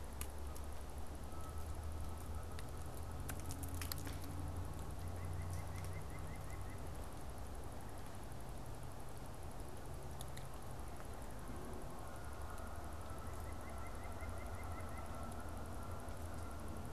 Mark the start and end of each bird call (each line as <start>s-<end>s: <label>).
1.0s-4.3s: Canada Goose (Branta canadensis)
5.0s-6.9s: White-breasted Nuthatch (Sitta carolinensis)
11.8s-16.9s: Canada Goose (Branta canadensis)
13.0s-15.1s: White-breasted Nuthatch (Sitta carolinensis)